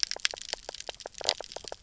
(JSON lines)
{"label": "biophony, knock croak", "recorder": "SoundTrap 300"}